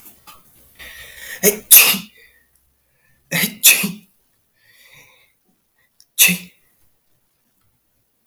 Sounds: Sneeze